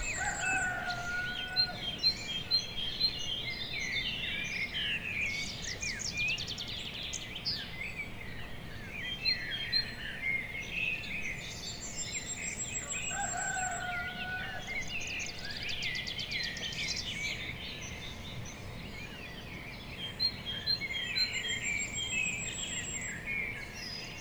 Are there birds chirping?
yes